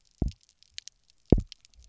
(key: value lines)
label: biophony, double pulse
recorder: SoundTrap 300